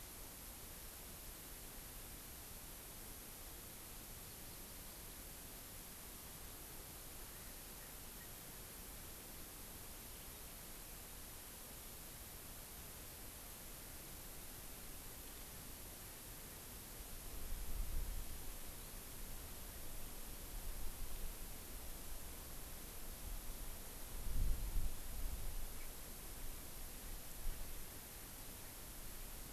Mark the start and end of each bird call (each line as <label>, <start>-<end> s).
Erckel's Francolin (Pternistis erckelii), 7.1-8.7 s